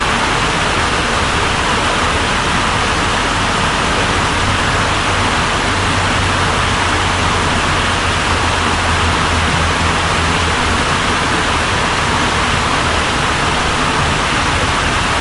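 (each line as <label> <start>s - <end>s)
A strong waterfall in nature. 0.0s - 15.2s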